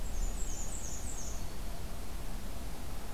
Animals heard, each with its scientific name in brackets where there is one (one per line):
Black-and-white Warbler (Mniotilta varia)